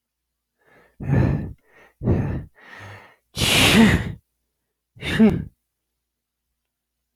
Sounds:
Sneeze